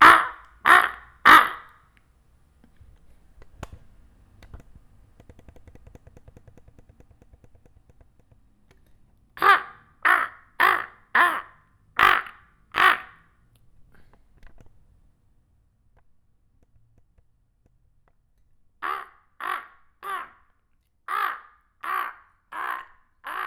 Is there a bird squawking?
yes